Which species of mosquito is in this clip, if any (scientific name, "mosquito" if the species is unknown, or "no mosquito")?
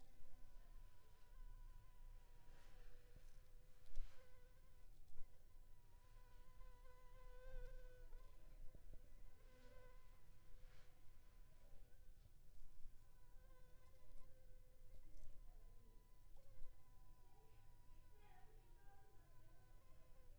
Anopheles funestus s.s.